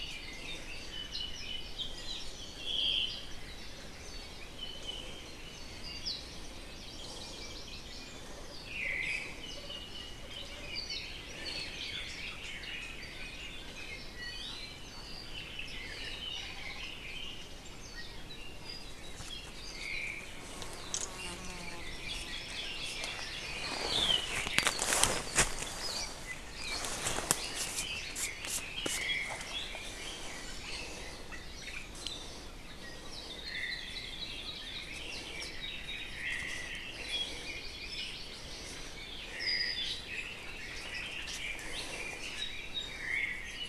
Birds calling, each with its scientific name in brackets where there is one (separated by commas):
Hawaii Amakihi (Chlorodrepanis virens), Omao (Myadestes obscurus), Hawaii Akepa (Loxops coccineus), Iiwi (Drepanis coccinea), Red-billed Leiothrix (Leiothrix lutea), Apapane (Himatione sanguinea)